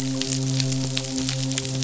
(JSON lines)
{"label": "biophony, midshipman", "recorder": "SoundTrap 500"}